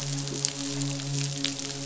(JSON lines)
{"label": "biophony, midshipman", "recorder": "SoundTrap 500"}